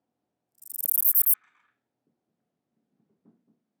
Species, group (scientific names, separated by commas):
Callicrania ramburii, Orthoptera